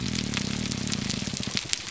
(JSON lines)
{"label": "biophony, grouper groan", "recorder": "SoundTrap 300"}